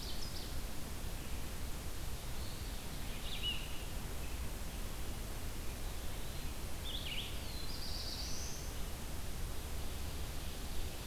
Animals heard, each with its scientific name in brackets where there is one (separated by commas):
Ovenbird (Seiurus aurocapilla), Red-eyed Vireo (Vireo olivaceus), Black-throated Blue Warbler (Setophaga caerulescens)